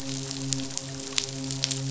{"label": "biophony, midshipman", "recorder": "SoundTrap 500"}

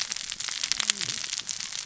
{"label": "biophony, cascading saw", "recorder": "SoundTrap 600 or HydroMoth"}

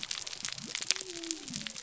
{"label": "biophony", "recorder": "SoundTrap 300"}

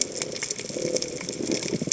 {"label": "biophony", "recorder": "HydroMoth"}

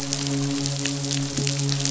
{"label": "biophony, midshipman", "recorder": "SoundTrap 500"}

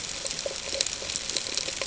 {"label": "ambient", "recorder": "HydroMoth"}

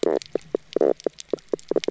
{"label": "biophony, knock croak", "recorder": "SoundTrap 300"}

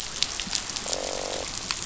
{"label": "biophony, croak", "recorder": "SoundTrap 500"}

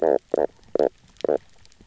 {"label": "biophony, knock croak", "recorder": "SoundTrap 300"}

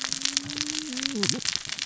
{"label": "biophony, cascading saw", "recorder": "SoundTrap 600 or HydroMoth"}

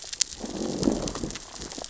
{"label": "biophony, growl", "recorder": "SoundTrap 600 or HydroMoth"}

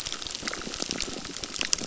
{"label": "biophony, crackle", "recorder": "SoundTrap 600"}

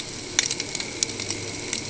{"label": "ambient", "recorder": "HydroMoth"}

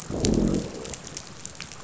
{"label": "biophony, growl", "recorder": "SoundTrap 500"}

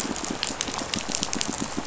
{"label": "biophony, pulse", "recorder": "SoundTrap 500"}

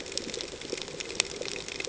{"label": "ambient", "recorder": "HydroMoth"}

